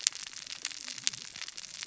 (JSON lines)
{"label": "biophony, cascading saw", "recorder": "SoundTrap 600 or HydroMoth"}